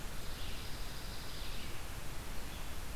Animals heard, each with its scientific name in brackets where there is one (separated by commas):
Red-eyed Vireo (Vireo olivaceus), Dark-eyed Junco (Junco hyemalis)